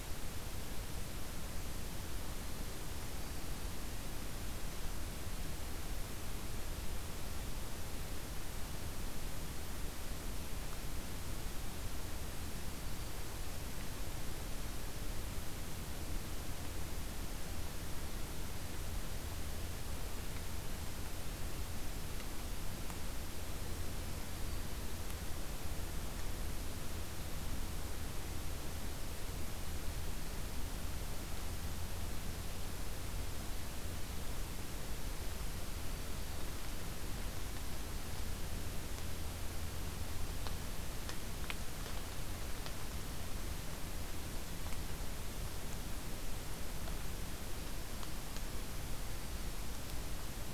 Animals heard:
forest ambience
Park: Acadia National Park